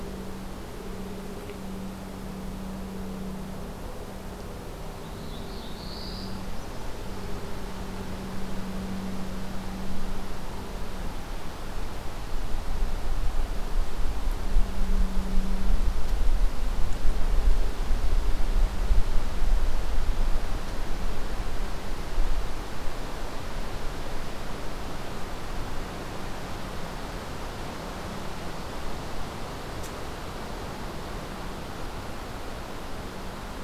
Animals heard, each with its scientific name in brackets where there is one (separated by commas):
Black-throated Blue Warbler (Setophaga caerulescens)